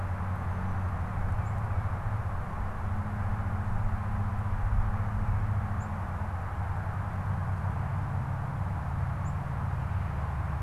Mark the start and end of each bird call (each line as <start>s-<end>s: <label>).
0.0s-9.7s: unidentified bird
1.0s-2.2s: Tufted Titmouse (Baeolophus bicolor)